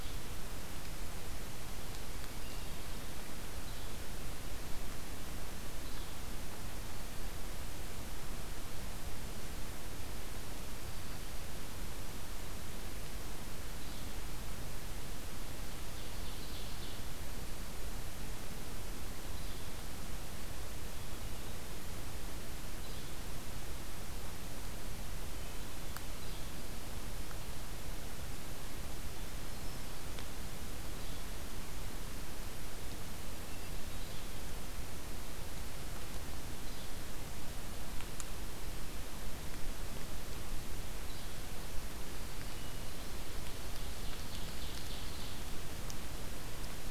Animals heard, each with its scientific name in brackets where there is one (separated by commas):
Hermit Thrush (Catharus guttatus), Ovenbird (Seiurus aurocapilla), Yellow-bellied Flycatcher (Empidonax flaviventris)